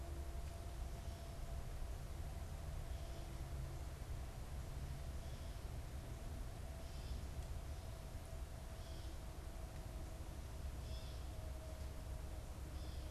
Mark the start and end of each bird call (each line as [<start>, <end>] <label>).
[6.71, 13.11] Gray Catbird (Dumetella carolinensis)